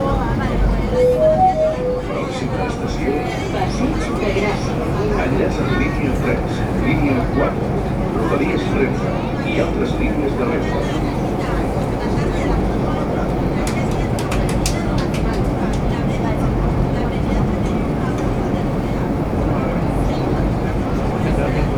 Does a loud sportscar zoom by?
no